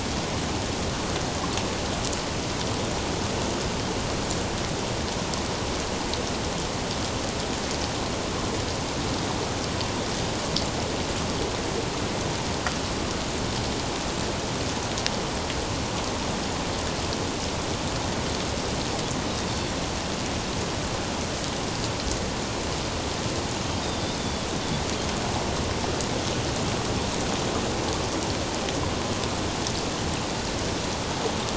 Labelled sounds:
19.5	19.7	Pacific white-sided dolphin, 4.3 to 4.5 kHz
23.8	24.5	Pacific white-sided dolphin, 3.3 to 3.8 kHz

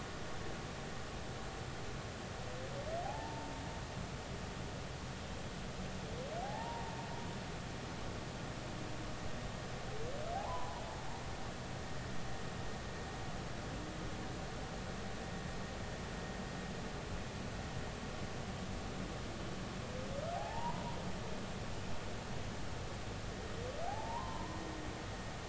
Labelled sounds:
3.0	3.5	humpback whale, 0.80 to 0.96 kHz
6.4	7.0	humpback whale, 0.80 to 0.99 kHz
10.3	10.8	humpback whale, 0.80 to 1.1 kHz
20.3	21.0	humpback whale, 0.80 to 1.1 kHz
23.9	24.6	humpback whale, 0.80 to 1.1 kHz

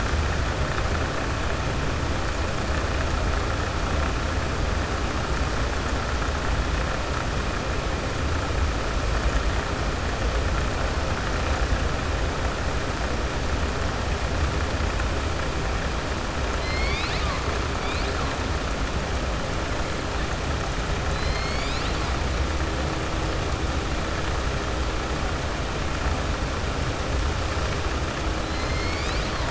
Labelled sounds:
16.5	17.4	killer whale, southern resident, 1.1 to 5.3 kHz

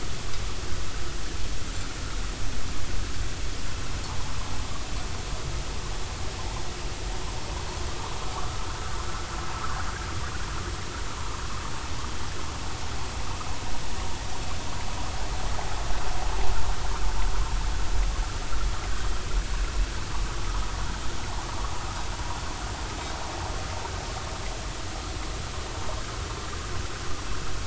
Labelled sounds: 8.6	9.8	vessel noise, 1.0 to 1.6 kHz

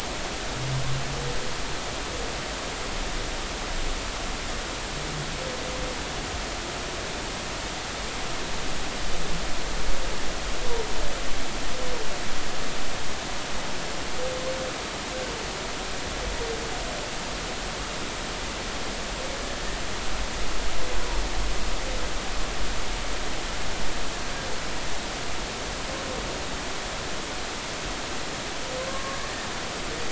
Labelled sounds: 28.9	29.2	humpback whale, 1.0 to 1.2 kHz

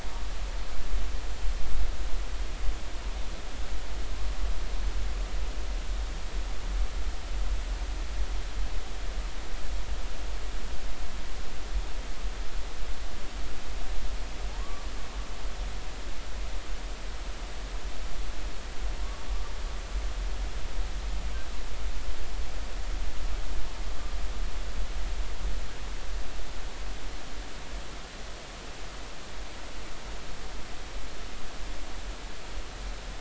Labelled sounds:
14.6	14.9	humpback whale, 1.0 to 1.2 kHz

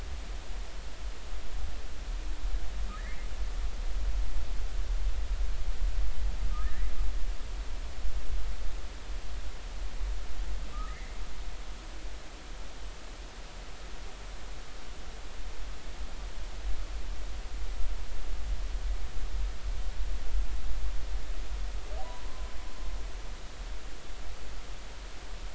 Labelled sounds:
6.5	6.9	humpback whale, 1.2 to 2.0 kHz
10.7	11.2	humpback whale, 1.1 to 2.2 kHz
22.0	22.5	humpback whale, 0.93 to 1.1 kHz

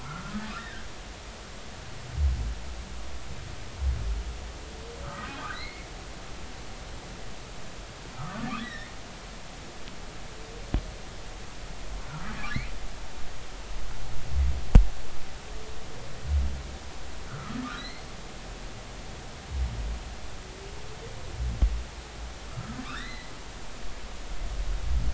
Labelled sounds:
0.0	0.9	humpback whale, 1.1 to 1.9 kHz
5.0	5.9	humpback whale, 1.1 to 4.4 kHz
8.1	8.9	humpback whale, 1.1 to 4.0 kHz
12.1	12.7	humpback whale, 1.2 to 2.5 kHz
17.3	18.1	humpback whale, 1.2 to 4.4 kHz
22.5	23.3	humpback whale, 1.0 to 4.2 kHz

